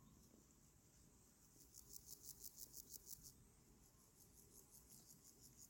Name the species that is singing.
Pseudochorthippus parallelus